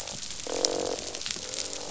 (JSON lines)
{"label": "biophony, croak", "recorder": "SoundTrap 500"}